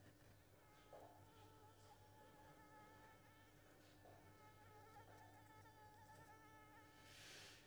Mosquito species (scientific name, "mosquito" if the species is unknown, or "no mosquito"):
Anopheles squamosus